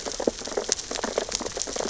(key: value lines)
label: biophony, sea urchins (Echinidae)
recorder: SoundTrap 600 or HydroMoth